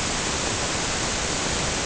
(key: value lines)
label: ambient
recorder: HydroMoth